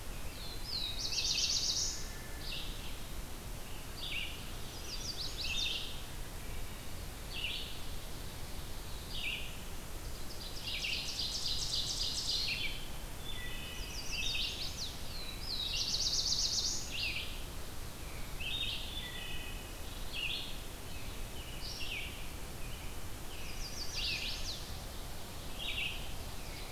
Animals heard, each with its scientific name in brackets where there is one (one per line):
Chestnut-sided Warbler (Setophaga pensylvanica)
American Robin (Turdus migratorius)
Ovenbird (Seiurus aurocapilla)
Black-throated Blue Warbler (Setophaga caerulescens)
Red-eyed Vireo (Vireo olivaceus)
Wood Thrush (Hylocichla mustelina)